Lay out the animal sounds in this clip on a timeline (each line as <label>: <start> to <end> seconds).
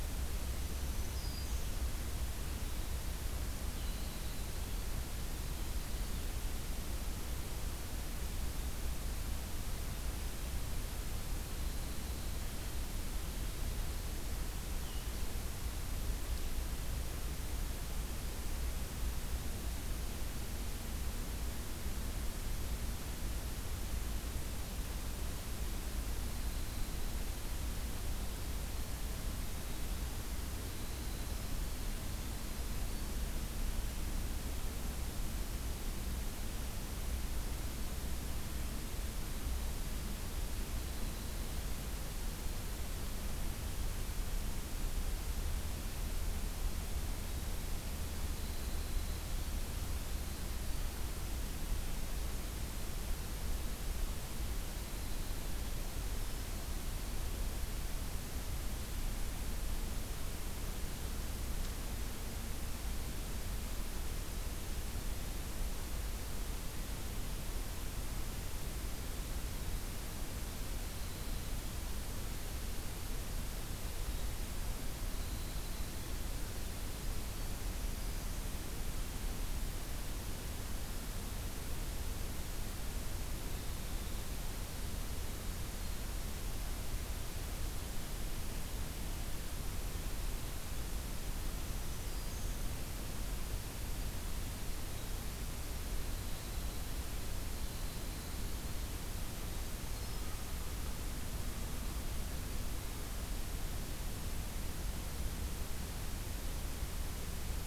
Black-throated Green Warbler (Setophaga virens): 0.6 to 1.7 seconds
Winter Wren (Troglodytes hiemalis): 3.5 to 6.3 seconds
Winter Wren (Troglodytes hiemalis): 11.3 to 12.8 seconds
Blue-headed Vireo (Vireo solitarius): 14.8 to 15.2 seconds
Winter Wren (Troglodytes hiemalis): 26.1 to 33.4 seconds
Winter Wren (Troglodytes hiemalis): 40.3 to 43.2 seconds
Winter Wren (Troglodytes hiemalis): 47.1 to 51.1 seconds
Winter Wren (Troglodytes hiemalis): 54.7 to 56.5 seconds
Black-throated Green Warbler (Setophaga virens): 55.5 to 56.7 seconds
Winter Wren (Troglodytes hiemalis): 69.6 to 71.7 seconds
Winter Wren (Troglodytes hiemalis): 73.8 to 79.4 seconds
Winter Wren (Troglodytes hiemalis): 83.4 to 86.0 seconds
Black-throated Green Warbler (Setophaga virens): 91.4 to 92.6 seconds
Winter Wren (Troglodytes hiemalis): 94.5 to 100.2 seconds
Black-throated Green Warbler (Setophaga virens): 99.4 to 100.4 seconds